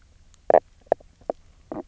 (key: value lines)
label: biophony, knock croak
recorder: SoundTrap 300